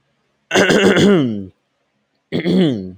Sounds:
Throat clearing